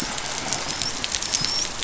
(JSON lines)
{"label": "biophony, dolphin", "recorder": "SoundTrap 500"}